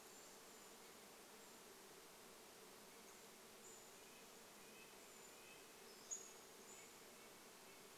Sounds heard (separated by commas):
Golden-crowned Kinglet call, Red-breasted Nuthatch song, insect buzz, Pacific-slope Flycatcher call, Brown Creeper call